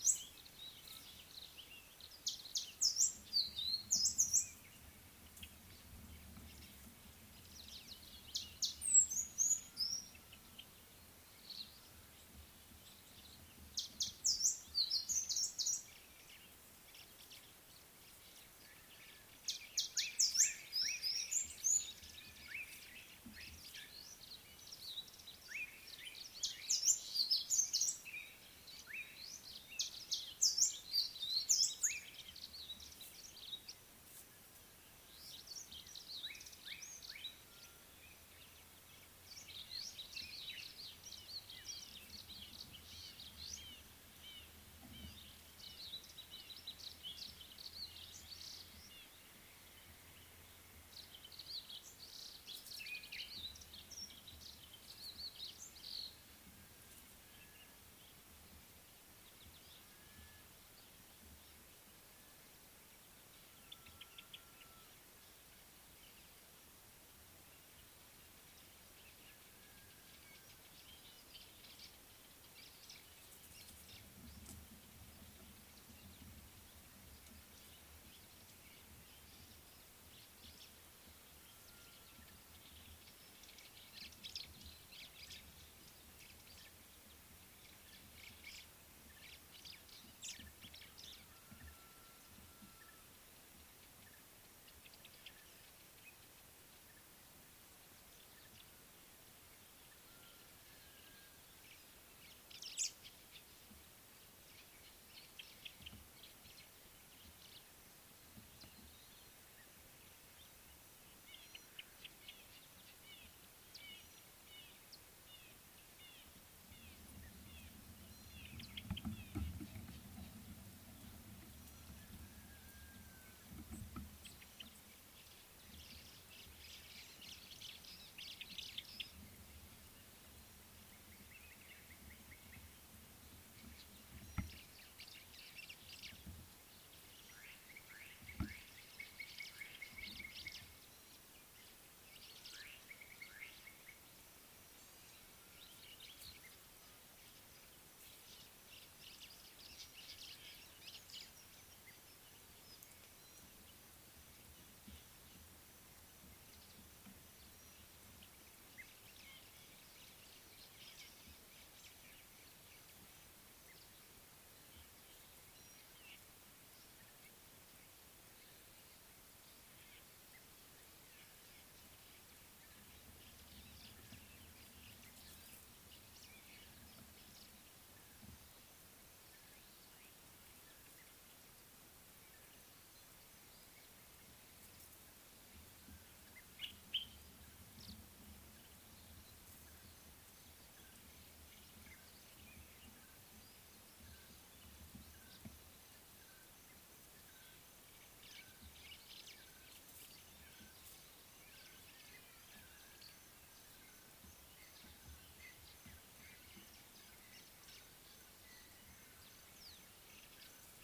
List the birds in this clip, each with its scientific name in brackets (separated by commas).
African Thrush (Turdus pelios), Brimstone Canary (Crithagra sulphurata), Amethyst Sunbird (Chalcomitra amethystina), White-browed Sparrow-Weaver (Plocepasser mahali), Common Bulbul (Pycnonotus barbatus), Red-fronted Barbet (Tricholaema diademata), Slate-colored Boubou (Laniarius funebris)